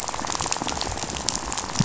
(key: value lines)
label: biophony, rattle
recorder: SoundTrap 500